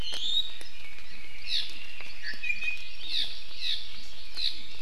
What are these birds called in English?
Iiwi, Red-billed Leiothrix, Hawaii Amakihi